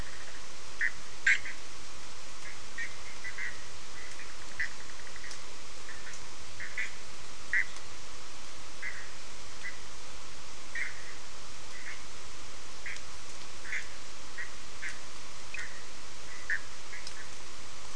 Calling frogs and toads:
Bischoff's tree frog (Boana bischoffi)
5:00am

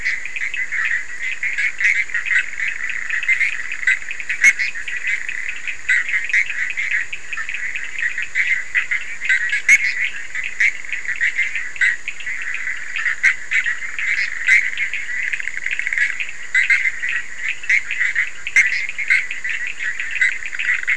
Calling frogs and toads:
Bischoff's tree frog (Boana bischoffi), Cochran's lime tree frog (Sphaenorhynchus surdus)
3:00am

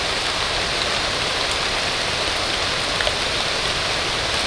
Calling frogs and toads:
none
2:30am

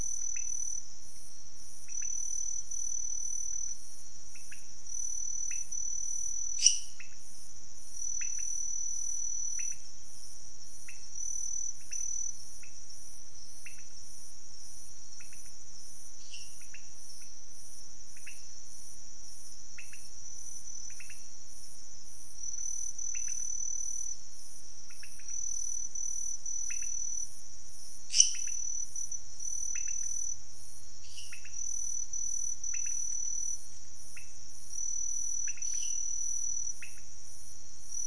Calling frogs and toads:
pointedbelly frog (Leptodactylus podicipinus), lesser tree frog (Dendropsophus minutus)
4:30am

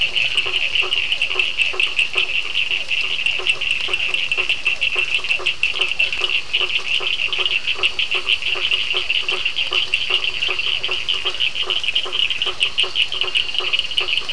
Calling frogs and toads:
blacksmith tree frog (Boana faber), Physalaemus cuvieri, Cochran's lime tree frog (Sphaenorhynchus surdus)
7:30pm

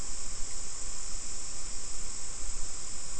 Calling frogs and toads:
none
5:15pm

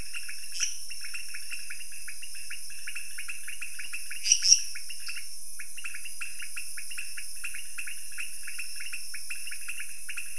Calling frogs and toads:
pointedbelly frog (Leptodactylus podicipinus), lesser tree frog (Dendropsophus minutus), dwarf tree frog (Dendropsophus nanus)
3:00am

